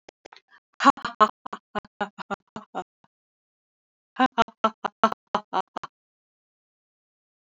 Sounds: Laughter